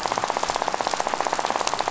{"label": "biophony, rattle", "recorder": "SoundTrap 500"}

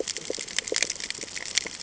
{"label": "ambient", "recorder": "HydroMoth"}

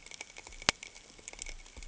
{"label": "ambient", "recorder": "HydroMoth"}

